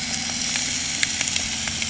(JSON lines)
{"label": "anthrophony, boat engine", "recorder": "HydroMoth"}